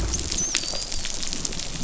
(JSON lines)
{"label": "biophony", "recorder": "SoundTrap 500"}
{"label": "biophony, dolphin", "recorder": "SoundTrap 500"}